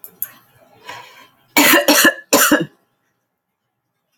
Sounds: Cough